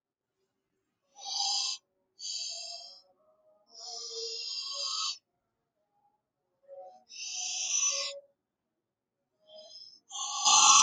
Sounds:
Sniff